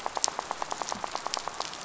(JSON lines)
{"label": "biophony, rattle", "recorder": "SoundTrap 500"}